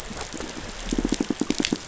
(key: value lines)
label: biophony, pulse
recorder: SoundTrap 500